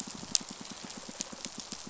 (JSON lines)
{"label": "biophony, pulse", "recorder": "SoundTrap 500"}